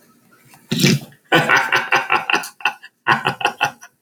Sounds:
Laughter